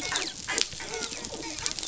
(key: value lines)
label: biophony, dolphin
recorder: SoundTrap 500